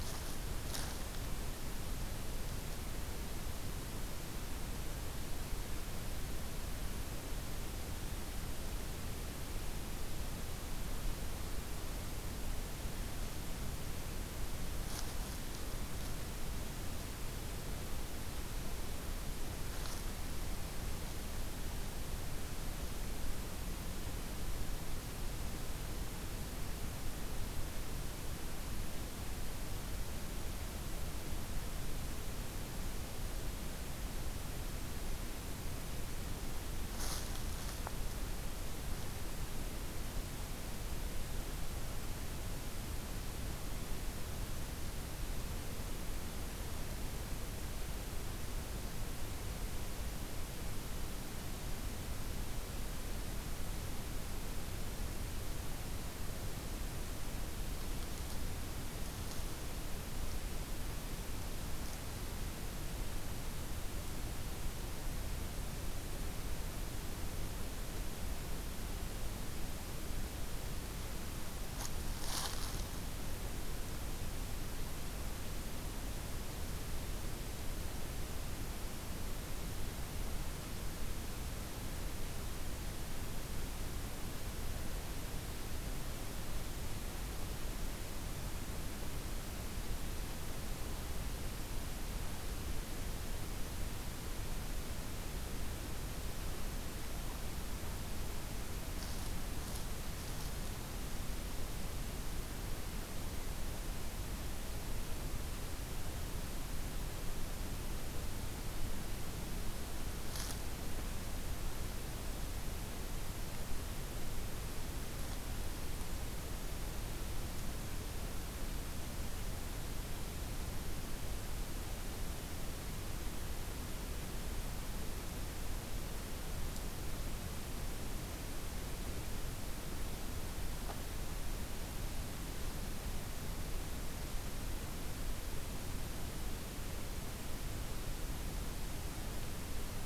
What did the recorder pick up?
forest ambience